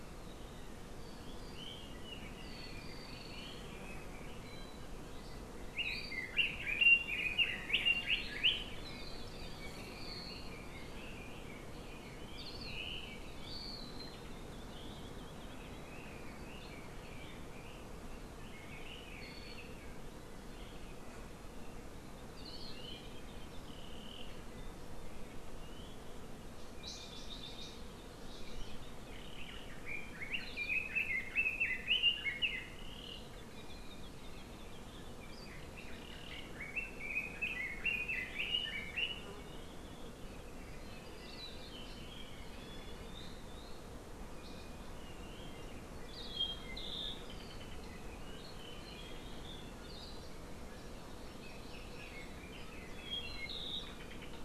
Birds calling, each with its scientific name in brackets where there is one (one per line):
Hawaii Akepa (Loxops coccineus)
Hawaii Amakihi (Chlorodrepanis virens)
Red-billed Leiothrix (Leiothrix lutea)
Hawaii Creeper (Loxops mana)
Apapane (Himatione sanguinea)